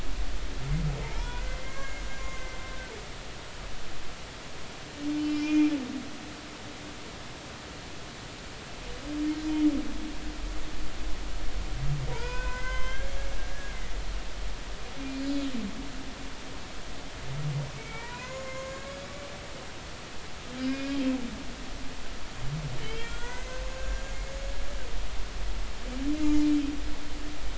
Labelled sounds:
1.0	2.9	humpback whale, 0.86 to 7.0 kHz
5.2	5.7	humpback whale, 2.3 to 5.4 kHz
12.1	13.7	humpback whale, 0.86 to 6.3 kHz
17.8	19.1	humpback whale, 0.86 to 7.1 kHz
20.6	21.0	humpback whale, 1.5 to 2.6 kHz
22.8	24.5	humpback whale, 1.3 to 7.0 kHz
26.2	26.5	humpback whale, 5.0 to 5.2 kHz

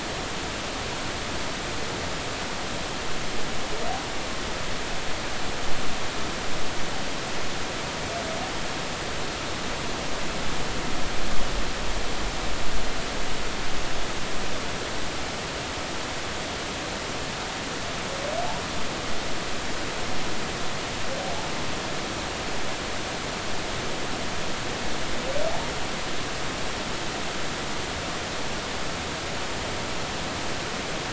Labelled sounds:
21.2	21.5	humpback whale, 0.80 to 0.93 kHz

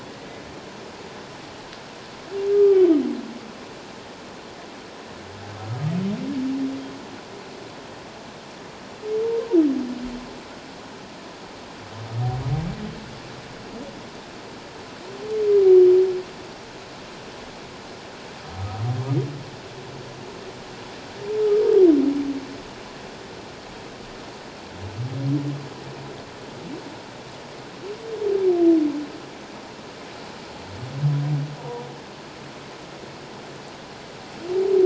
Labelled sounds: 2.5	2.9	humpback whale, 1.1 to 1.2 kHz
31.6	31.8	humpback whale, 0.81 to 1.0 kHz

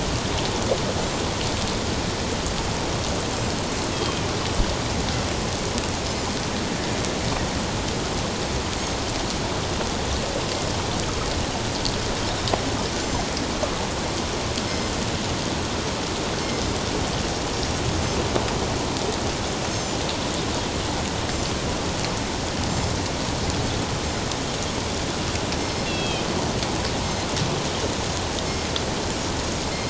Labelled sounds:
3.9	4.2	Pacific white-sided dolphin, 3.1 to 3.4 kHz
14.7	14.9	Pacific white-sided dolphin, 5.1 to 5.3 kHz
19.7	20.0	Pacific white-sided dolphin, 6.0 to 7.5 kHz
21.3	21.5	Pacific white-sided dolphin, 7.1 to 7.4 kHz
22.7	22.9	Pacific white-sided dolphin, 7.1 to 7.4 kHz
25.6	26.2	Pacific white-sided dolphin, 2.1 to 5.4 kHz

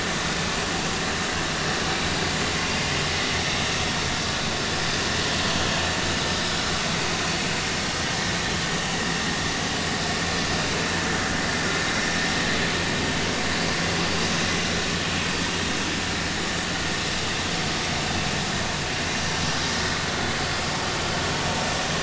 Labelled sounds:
19.1	19.4	vessel noise, 5.6 to 5.8 kHz

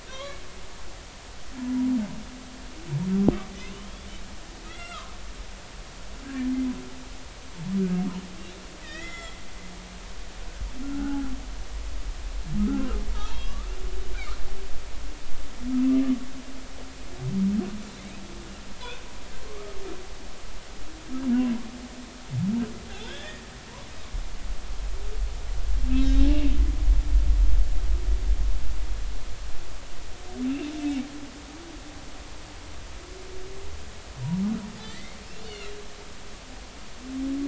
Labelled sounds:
0.1	0.4	humpback whale, 0.99 to 4.0 kHz
3.6	4.1	humpback whale, 2.4 to 3.7 kHz
4.7	5.2	humpback whale, 0.99 to 2.2 kHz
8.8	9.4	humpback whale, 1.2 to 6.9 kHz
10.8	11.2	humpback whale, 0.80 to 1.6 kHz
12.6	12.9	humpback whale, 1.2 to 1.5 kHz
13.4	13.7	humpback whale, 1.1 to 1.3 kHz
19.5	19.8	humpback whale, 1.0 to 1.3 kHz
22.9	23.4	humpback whale, 1.4 to 3.6 kHz
26.0	26.2	humpback whale, 3.7 to 3.9 kHz
30.4	30.7	humpback whale, 2.5 to 2.8 kHz
34.8	35.7	humpback whale, 1.7 to 3.0 kHz

